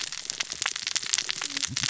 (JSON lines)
{"label": "biophony, cascading saw", "recorder": "SoundTrap 600 or HydroMoth"}